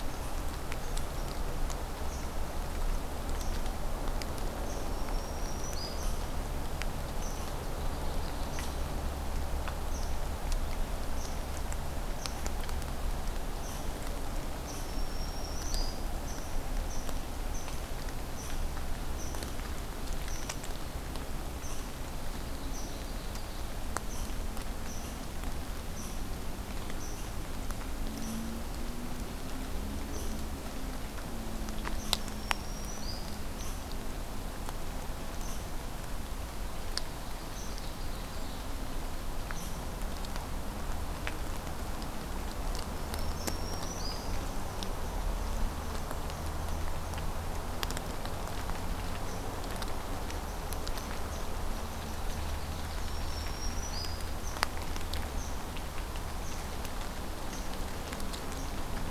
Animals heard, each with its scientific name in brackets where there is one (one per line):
Red Squirrel (Tamiasciurus hudsonicus)
Ovenbird (Seiurus aurocapilla)
Black-throated Green Warbler (Setophaga virens)